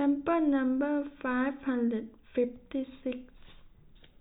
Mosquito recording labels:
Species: no mosquito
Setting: cup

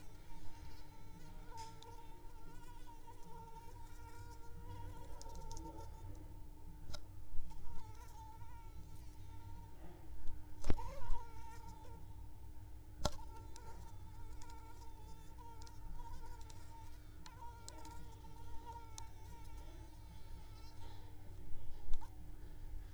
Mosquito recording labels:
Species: Anopheles arabiensis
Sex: female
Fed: unfed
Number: one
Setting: cup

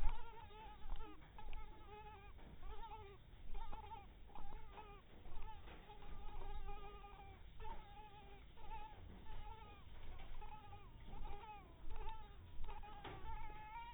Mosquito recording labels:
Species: mosquito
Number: one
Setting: cup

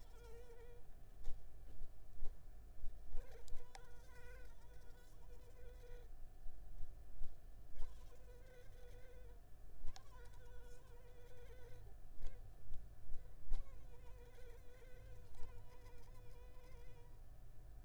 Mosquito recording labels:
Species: Anopheles arabiensis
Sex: female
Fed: unfed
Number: one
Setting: cup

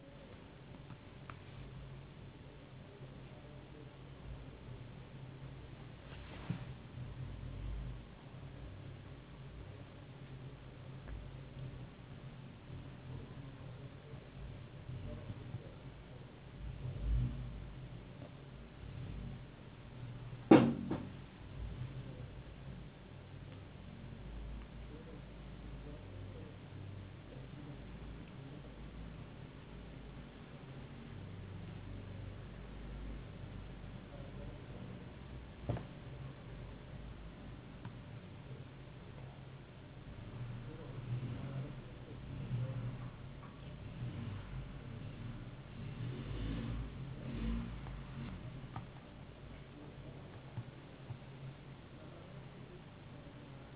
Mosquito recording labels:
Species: no mosquito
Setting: insect culture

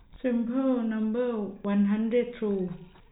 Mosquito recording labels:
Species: no mosquito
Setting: cup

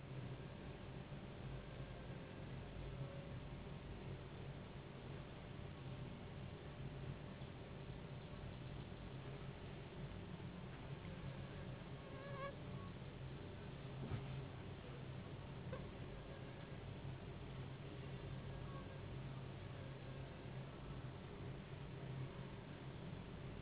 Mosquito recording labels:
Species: Anopheles gambiae s.s.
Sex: female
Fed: unfed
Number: one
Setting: insect culture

